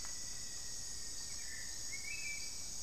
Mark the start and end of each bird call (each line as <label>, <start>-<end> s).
Rufous-fronted Antthrush (Formicarius rufifrons), 0.0-1.5 s
Hauxwell's Thrush (Turdus hauxwelli), 0.0-2.8 s